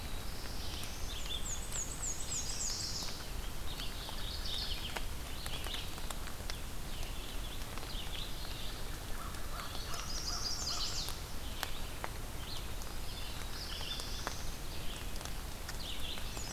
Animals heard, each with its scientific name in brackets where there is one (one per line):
Mourning Warbler (Geothlypis philadelphia)
Black-and-white Warbler (Mniotilta varia)
American Crow (Corvus brachyrhynchos)
Chestnut-sided Warbler (Setophaga pensylvanica)
Black-throated Blue Warbler (Setophaga caerulescens)
Red-eyed Vireo (Vireo olivaceus)